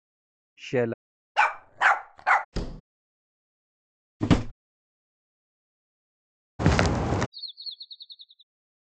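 First, someone says "Sheila". Then a dog barks. After that, a wooden door closes quietly. Next, a drawer opening or closing is heard. Following that, walking can be heard. Then bird vocalization is audible.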